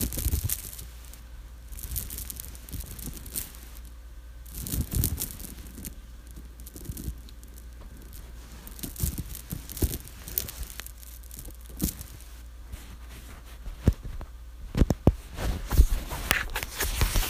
Is the beginning the loudest part?
no